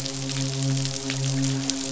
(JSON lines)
{"label": "biophony, midshipman", "recorder": "SoundTrap 500"}